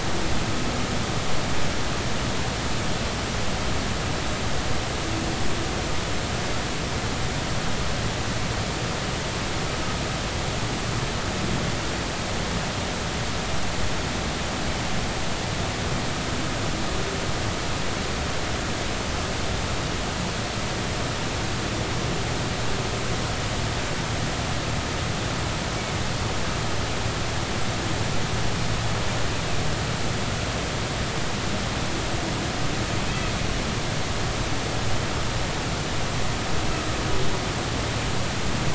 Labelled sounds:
25.8	26.0	humpback whale, 2.1 to 2.3 kHz

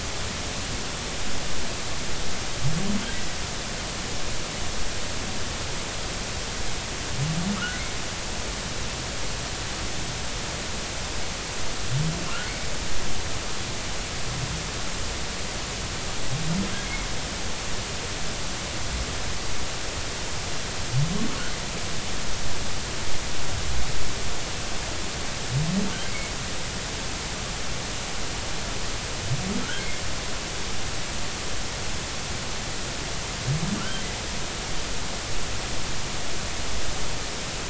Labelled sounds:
7.6	7.8	humpback whale, 1.1 to 1.5 kHz
26.0	26.3	humpback whale, 2.1 to 2.3 kHz
29.6	29.9	humpback whale, 1.3 to 1.7 kHz
33.8	34.0	humpback whale, 1.3 to 1.6 kHz

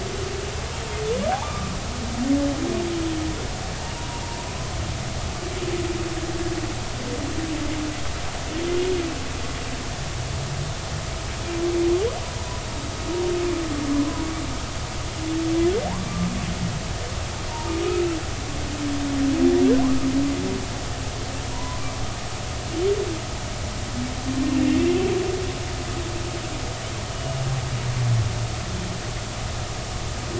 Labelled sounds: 1.3	1.7	humpback whale, 0.99 to 1.3 kHz
19.8	20.1	humpback whale, 0.96 to 1.3 kHz
21.5	21.8	humpback whale, 0.90 to 1.1 kHz
27.1	27.3	humpback whale, 2.8 to 3.0 kHz

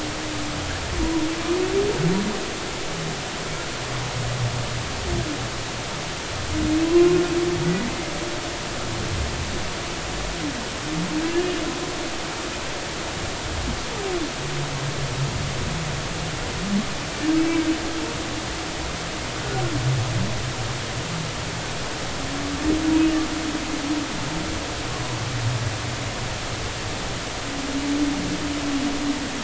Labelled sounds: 1.0	1.3	humpback whale, 0.93 to 1.0 kHz
6.8	7.2	humpback whale, 0.96 to 1.1 kHz
7.7	7.9	humpback whale, 1.9 to 2.0 kHz
11.2	11.4	humpback whale, 1.6 to 1.8 kHz

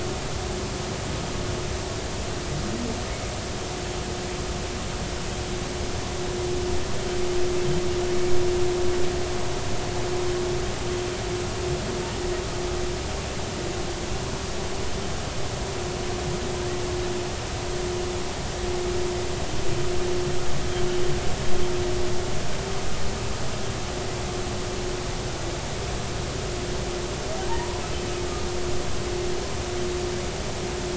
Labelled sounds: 27.5	27.8	humpback whale, 0.83 to 1.1 kHz

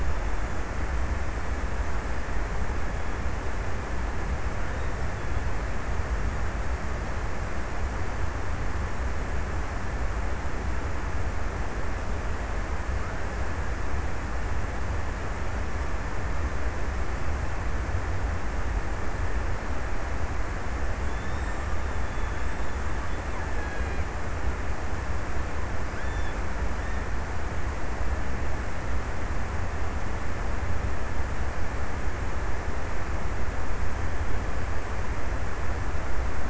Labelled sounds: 20.4	24.8	killer whale, Bigg's (transient), 1.3 to 4.0 kHz

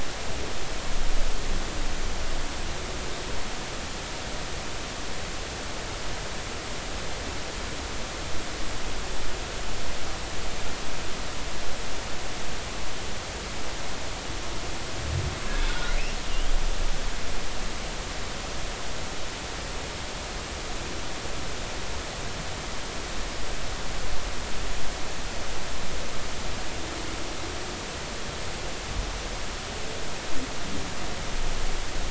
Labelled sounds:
15.7	16.5	humpback whale, 1.3 to 3.2 kHz

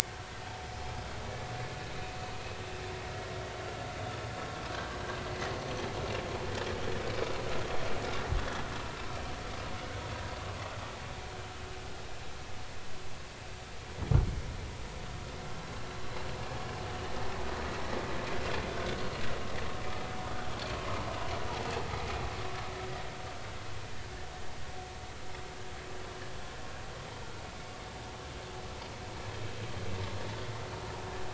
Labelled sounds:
4.7	5.0	vessel noise, 1.5 to 1.7 kHz

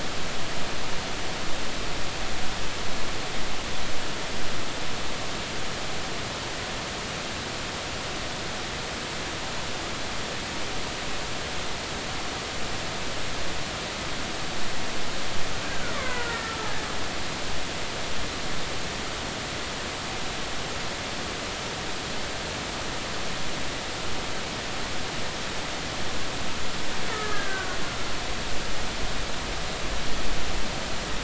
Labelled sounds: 15.9	16.5	killer whale, Bigg's (transient), 0.90 to 2.3 kHz
27.1	27.8	killer whale, Bigg's (transient), 1.2 to 1.9 kHz

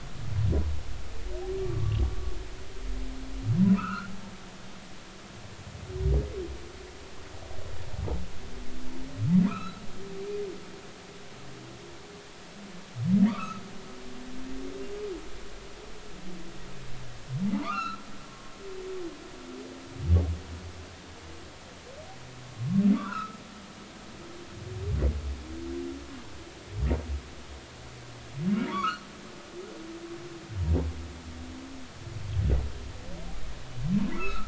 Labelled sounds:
1.6	2.0	humpback whale, 1.0 to 1.2 kHz
3.7	4.1	humpback whale, 1.1 to 2.8 kHz
9.5	10.7	humpback whale, 0.93 to 4.1 kHz
13.3	13.6	humpback whale, 1.1 to 1.5 kHz
17.6	18.0	humpback whale, 0.90 to 4.2 kHz
22.9	23.4	humpback whale, 0.93 to 1.7 kHz
28.7	29.0	humpback whale, 1.0 to 4.6 kHz
34.2	34.4	humpback whale, 1.2 to 2.8 kHz

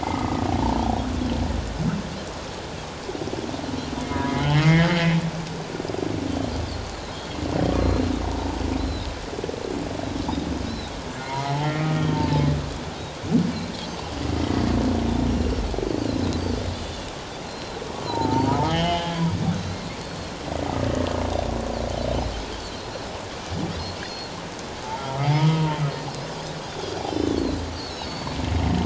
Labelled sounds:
0.0	0.4	humpback whale, 1.1 to 2.2 kHz
4.3	5.1	humpback whale, 1.8 to 3.3 kHz
7.1	8.1	Pacific white-sided dolphin, 3.2 to 4.2 kHz
8.8	9.1	Pacific white-sided dolphin, 3.6 to 4.2 kHz
10.7	10.9	Pacific white-sided dolphin, 3.7 to 4.2 kHz
11.2	12.2	humpback whale, 0.81 to 3.3 kHz
15.3	15.6	Pacific white-sided dolphin, 5.2 to 5.8 kHz
16.7	18.3	Pacific white-sided dolphin, 2.7 to 4.2 kHz
18.0	19.2	humpback whale, 0.84 to 3.5 kHz
19.6	20.3	Pacific white-sided dolphin, 4.1 to 4.5 kHz
21.2	21.5	Pacific white-sided dolphin, 3.5 to 3.8 kHz
24.0	24.3	Pacific white-sided dolphin, 4.2 to 4.4 kHz
25.2	25.8	humpback whale, 0.84 to 3.2 kHz
27.0	28.4	Pacific white-sided dolphin, 3.0 to 6.8 kHz

